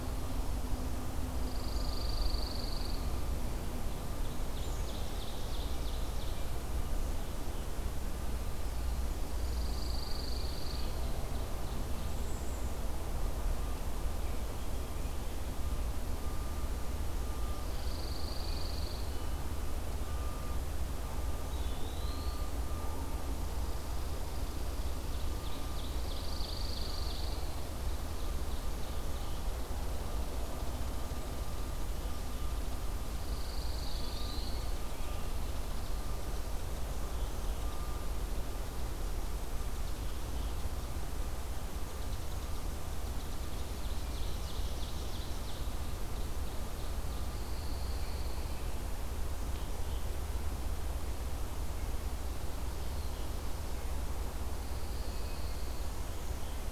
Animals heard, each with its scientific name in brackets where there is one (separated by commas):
Pine Warbler (Setophaga pinus), Eastern Wood-Pewee (Contopus virens), Ovenbird (Seiurus aurocapilla), Black-capped Chickadee (Poecile atricapillus), Red-eyed Vireo (Vireo olivaceus)